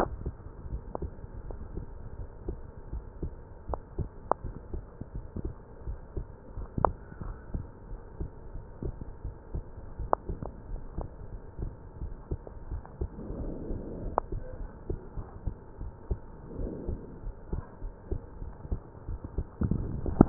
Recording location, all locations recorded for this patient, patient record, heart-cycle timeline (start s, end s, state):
pulmonary valve (PV)
aortic valve (AV)+pulmonary valve (PV)+tricuspid valve (TV)+mitral valve (MV)
#Age: Child
#Sex: Female
#Height: 120.0 cm
#Weight: 23.9 kg
#Pregnancy status: False
#Murmur: Absent
#Murmur locations: nan
#Most audible location: nan
#Systolic murmur timing: nan
#Systolic murmur shape: nan
#Systolic murmur grading: nan
#Systolic murmur pitch: nan
#Systolic murmur quality: nan
#Diastolic murmur timing: nan
#Diastolic murmur shape: nan
#Diastolic murmur grading: nan
#Diastolic murmur pitch: nan
#Diastolic murmur quality: nan
#Outcome: Normal
#Campaign: 2015 screening campaign
0.00	0.36	unannotated
0.36	0.70	diastole
0.70	0.84	S1
0.84	1.00	systole
1.00	1.12	S2
1.12	1.46	diastole
1.46	1.60	S1
1.60	1.74	systole
1.74	1.84	S2
1.84	2.18	diastole
2.18	2.28	S1
2.28	2.46	systole
2.46	2.60	S2
2.60	2.90	diastole
2.90	3.04	S1
3.04	3.20	systole
3.20	3.34	S2
3.34	3.68	diastole
3.68	3.80	S1
3.80	3.96	systole
3.96	4.10	S2
4.10	4.44	diastole
4.44	4.56	S1
4.56	4.72	systole
4.72	4.84	S2
4.84	5.14	diastole
5.14	5.26	S1
5.26	5.42	systole
5.42	5.56	S2
5.56	5.86	diastole
5.86	6.00	S1
6.00	6.14	systole
6.14	6.28	S2
6.28	6.56	diastole
6.56	6.68	S1
6.68	6.82	systole
6.82	6.96	S2
6.96	7.22	diastole
7.22	7.34	S1
7.34	7.50	systole
7.50	7.66	S2
7.66	7.90	diastole
7.90	7.98	S1
7.98	8.16	systole
8.16	8.28	S2
8.28	8.54	diastole
8.54	8.64	S1
8.64	8.82	systole
8.82	8.96	S2
8.96	9.24	diastole
9.24	9.34	S1
9.34	9.52	systole
9.52	9.64	S2
9.64	9.98	diastole
9.98	10.12	S1
10.12	10.30	systole
10.30	10.40	S2
10.40	10.68	diastole
10.68	10.82	S1
10.82	10.94	systole
10.94	11.06	S2
11.06	11.32	diastole
11.32	11.40	S1
11.40	11.60	systole
11.60	11.74	S2
11.74	12.00	diastole
12.00	12.16	S1
12.16	12.30	systole
12.30	12.40	S2
12.40	12.70	diastole
12.70	12.84	S1
12.84	13.02	systole
13.02	13.12	S2
13.12	13.38	diastole
13.38	20.29	unannotated